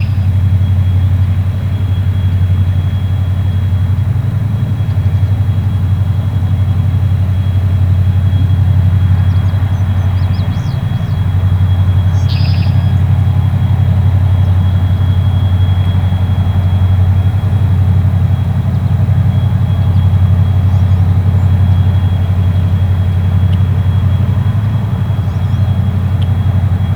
Does the vacuuming noise endure throughout the clip?
yes